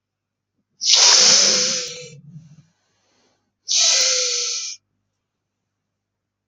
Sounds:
Sniff